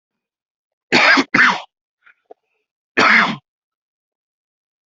{"expert_labels": [{"quality": "good", "cough_type": "dry", "dyspnea": false, "wheezing": false, "stridor": false, "choking": false, "congestion": false, "nothing": true, "diagnosis": "lower respiratory tract infection", "severity": "unknown"}], "age": 30, "gender": "male", "respiratory_condition": false, "fever_muscle_pain": false, "status": "symptomatic"}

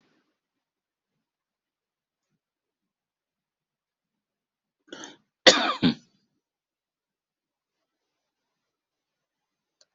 {"expert_labels": [{"quality": "good", "cough_type": "dry", "dyspnea": false, "wheezing": false, "stridor": false, "choking": false, "congestion": false, "nothing": true, "diagnosis": "COVID-19", "severity": "unknown"}], "age": 40, "gender": "male", "respiratory_condition": false, "fever_muscle_pain": false, "status": "healthy"}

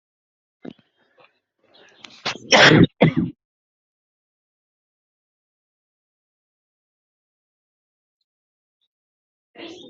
{"expert_labels": [{"quality": "poor", "cough_type": "unknown", "dyspnea": false, "wheezing": false, "stridor": false, "choking": false, "congestion": false, "nothing": true, "diagnosis": "healthy cough", "severity": "pseudocough/healthy cough"}], "age": 29, "gender": "male", "respiratory_condition": false, "fever_muscle_pain": false, "status": "symptomatic"}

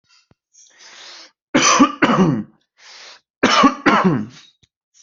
{"expert_labels": [{"quality": "ok", "cough_type": "dry", "dyspnea": false, "wheezing": false, "stridor": false, "choking": false, "congestion": false, "nothing": true, "diagnosis": "COVID-19", "severity": "mild"}], "age": 31, "gender": "male", "respiratory_condition": false, "fever_muscle_pain": true, "status": "symptomatic"}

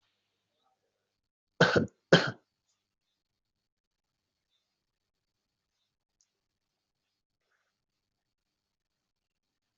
{"expert_labels": [{"quality": "good", "cough_type": "dry", "dyspnea": false, "wheezing": false, "stridor": false, "choking": false, "congestion": false, "nothing": true, "diagnosis": "upper respiratory tract infection", "severity": "mild"}], "age": 21, "gender": "female", "respiratory_condition": false, "fever_muscle_pain": false, "status": "COVID-19"}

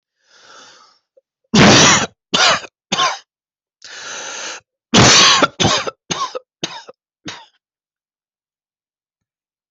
{"expert_labels": [{"quality": "ok", "cough_type": "unknown", "dyspnea": false, "wheezing": false, "stridor": false, "choking": false, "congestion": false, "nothing": true, "diagnosis": "obstructive lung disease", "severity": "mild"}], "age": 40, "gender": "male", "respiratory_condition": false, "fever_muscle_pain": false, "status": "healthy"}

